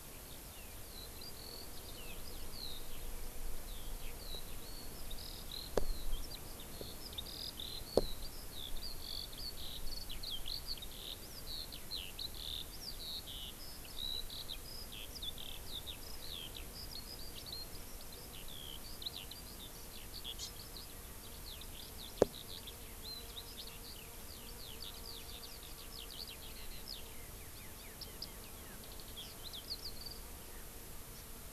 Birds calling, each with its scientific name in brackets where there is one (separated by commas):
Hawaii Amakihi (Chlorodrepanis virens), Eurasian Skylark (Alauda arvensis)